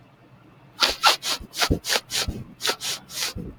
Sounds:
Sniff